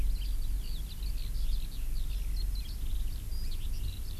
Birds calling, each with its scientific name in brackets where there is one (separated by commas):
Eurasian Skylark (Alauda arvensis)